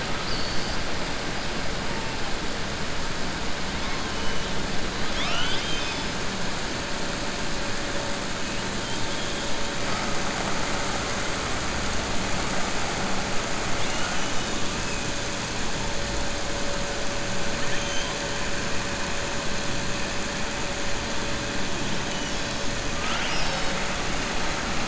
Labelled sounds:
0.1	0.8	killer whale, southern resident, 4.1 to 5.3 kHz
5.0	6.1	killer whale, southern resident, 0.74 to 6.2 kHz
17.6	18.1	killer whale, southern resident, 1.7 to 3.6 kHz
22.9	23.8	killer whale, southern resident, 1.3 to 5.8 kHz

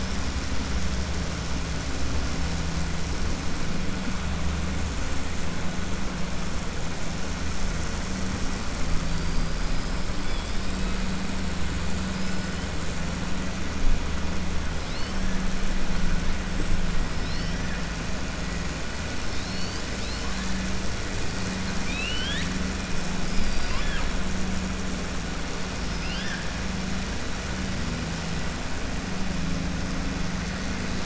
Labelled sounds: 21.6	22.5	killer whale, 1.5 to 5.5 kHz

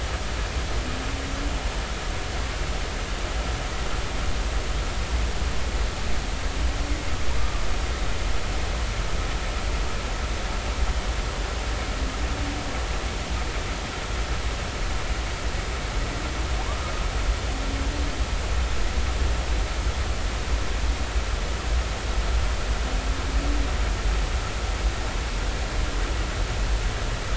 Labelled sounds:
7.4	7.6	humpback whale, 1.1 to 1.3 kHz

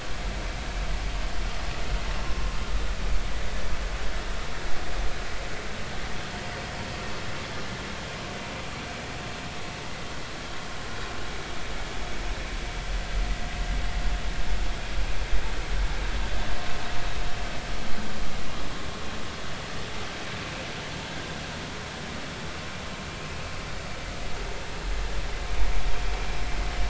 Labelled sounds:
2.2	2.6	vessel noise, 0.96 to 1.1 kHz

